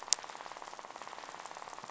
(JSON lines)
{"label": "biophony, rattle", "recorder": "SoundTrap 500"}